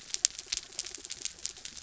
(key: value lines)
label: anthrophony, mechanical
recorder: SoundTrap 300